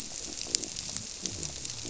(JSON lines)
{"label": "biophony", "recorder": "SoundTrap 300"}